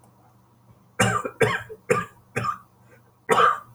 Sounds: Cough